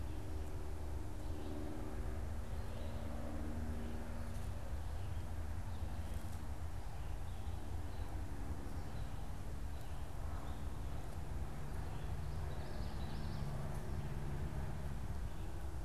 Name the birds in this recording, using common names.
Common Yellowthroat